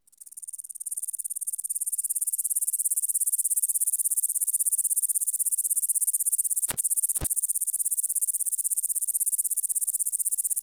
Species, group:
Tettigonia cantans
Orthoptera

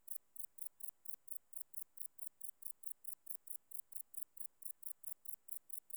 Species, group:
Tettigonia hispanica
Orthoptera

